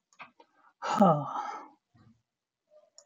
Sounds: Sigh